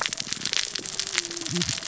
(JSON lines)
{"label": "biophony, cascading saw", "recorder": "SoundTrap 600 or HydroMoth"}